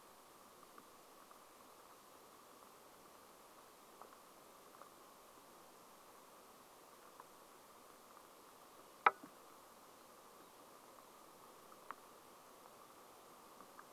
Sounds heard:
forest ambience